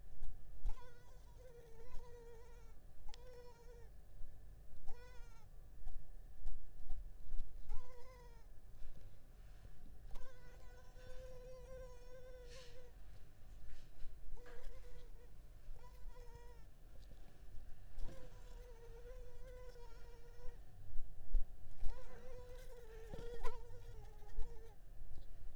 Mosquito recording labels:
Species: Culex pipiens complex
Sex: female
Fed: unfed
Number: one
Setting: cup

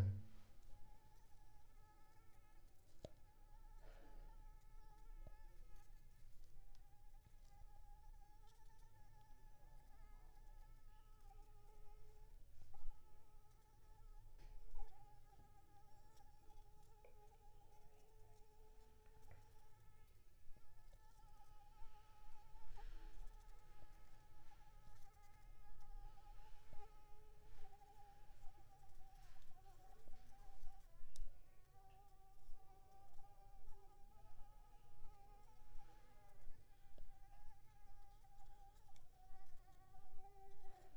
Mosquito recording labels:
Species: Anopheles arabiensis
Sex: female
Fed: unfed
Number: one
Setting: cup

